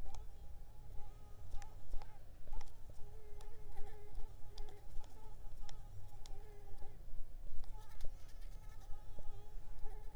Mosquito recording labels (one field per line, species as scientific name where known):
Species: Mansonia uniformis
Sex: female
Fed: unfed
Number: one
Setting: cup